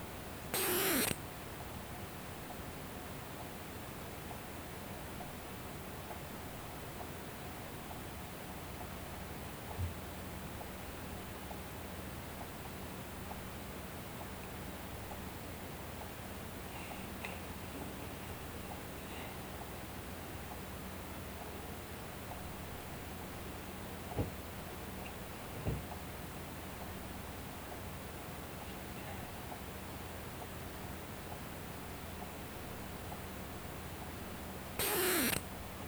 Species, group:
Poecilimon sanctipauli
Orthoptera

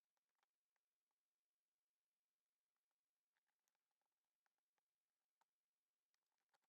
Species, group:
Synephippius obvius
Orthoptera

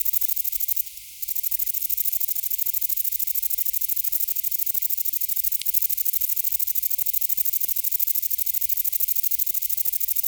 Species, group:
Vichetia oblongicollis
Orthoptera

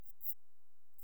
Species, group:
Antaxius kraussii
Orthoptera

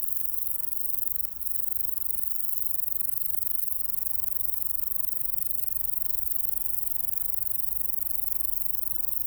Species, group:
Bicolorana bicolor
Orthoptera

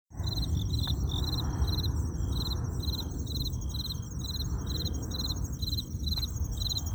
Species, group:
Allonemobius allardi
Orthoptera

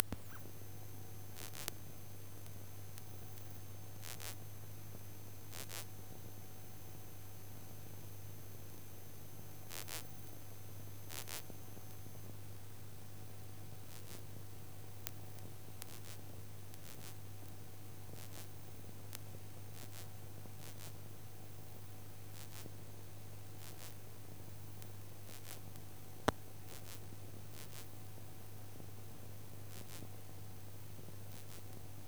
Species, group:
Incertana incerta
Orthoptera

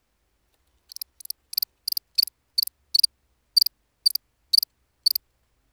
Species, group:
Gryllus bimaculatus
Orthoptera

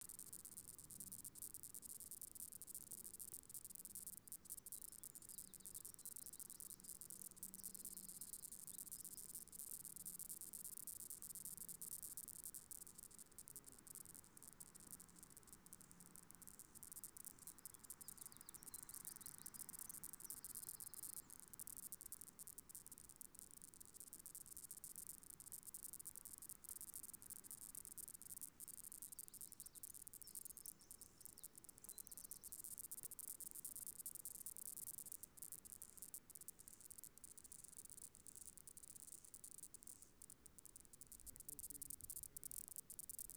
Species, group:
Stenobothrus lineatus
Orthoptera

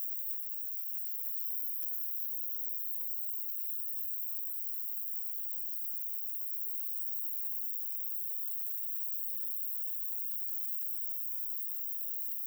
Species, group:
Roeseliana roeselii
Orthoptera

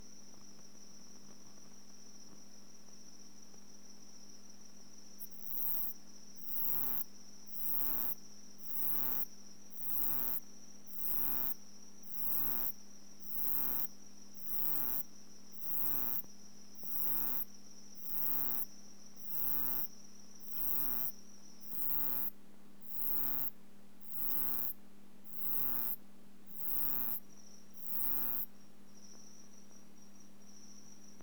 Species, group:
Uromenus elegans
Orthoptera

